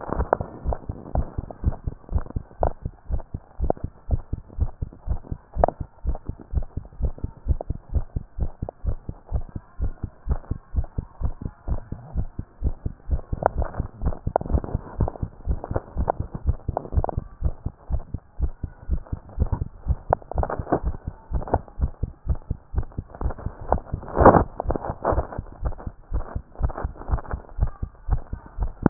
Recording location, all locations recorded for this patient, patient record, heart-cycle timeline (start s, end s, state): tricuspid valve (TV)
aortic valve (AV)+pulmonary valve (PV)+tricuspid valve (TV)+mitral valve (MV)
#Age: Child
#Sex: Female
#Height: 146.0 cm
#Weight: 35.1 kg
#Pregnancy status: False
#Murmur: Absent
#Murmur locations: nan
#Most audible location: nan
#Systolic murmur timing: nan
#Systolic murmur shape: nan
#Systolic murmur grading: nan
#Systolic murmur pitch: nan
#Systolic murmur quality: nan
#Diastolic murmur timing: nan
#Diastolic murmur shape: nan
#Diastolic murmur grading: nan
#Diastolic murmur pitch: nan
#Diastolic murmur quality: nan
#Outcome: Normal
#Campaign: 2015 screening campaign
0.00	1.10	unannotated
1.10	1.28	S1
1.28	1.36	systole
1.36	1.48	S2
1.48	1.62	diastole
1.62	1.74	S1
1.74	1.84	systole
1.84	1.94	S2
1.94	2.10	diastole
2.10	2.26	S1
2.26	2.32	systole
2.32	2.42	S2
2.42	2.60	diastole
2.60	2.74	S1
2.74	2.84	systole
2.84	2.92	S2
2.92	3.08	diastole
3.08	3.20	S1
3.20	3.30	systole
3.30	3.40	S2
3.40	3.58	diastole
3.58	3.74	S1
3.74	3.82	systole
3.82	3.90	S2
3.90	4.08	diastole
4.08	4.20	S1
4.20	4.30	systole
4.30	4.40	S2
4.40	4.56	diastole
4.56	4.72	S1
4.72	4.80	systole
4.80	4.92	S2
4.92	5.06	diastole
5.06	5.18	S1
5.18	5.30	systole
5.30	5.38	S2
5.38	5.54	diastole
5.54	5.68	S1
5.68	5.78	systole
5.78	5.88	S2
5.88	6.04	diastole
6.04	6.16	S1
6.16	6.26	systole
6.26	6.36	S2
6.36	6.52	diastole
6.52	6.68	S1
6.68	6.76	systole
6.76	6.84	S2
6.84	6.98	diastole
6.98	7.12	S1
7.12	7.20	systole
7.20	7.30	S2
7.30	7.46	diastole
7.46	7.58	S1
7.58	7.66	systole
7.66	7.76	S2
7.76	7.92	diastole
7.92	8.04	S1
8.04	8.12	systole
8.12	8.22	S2
8.22	8.38	diastole
8.38	8.50	S1
8.50	8.58	systole
8.58	8.68	S2
8.68	8.84	diastole
8.84	8.98	S1
8.98	9.08	systole
9.08	9.16	S2
9.16	9.32	diastole
9.32	9.46	S1
9.46	9.54	systole
9.54	9.64	S2
9.64	9.80	diastole
9.80	9.94	S1
9.94	10.02	systole
10.02	10.10	S2
10.10	10.26	diastole
10.26	10.38	S1
10.38	10.48	systole
10.48	10.58	S2
10.58	10.74	diastole
10.74	10.86	S1
10.86	10.96	systole
10.96	11.06	S2
11.06	11.22	diastole
11.22	11.36	S1
11.36	11.43	systole
11.43	11.52	S2
11.52	11.68	diastole
11.68	11.82	S1
11.82	11.90	systole
11.90	12.00	S2
12.00	12.16	diastole
12.16	12.27	S1
12.27	12.36	systole
12.36	12.46	S2
12.46	12.62	diastole
12.62	12.74	S1
12.74	12.84	systole
12.84	12.94	S2
12.94	13.08	diastole
13.08	28.90	unannotated